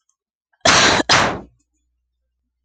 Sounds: Cough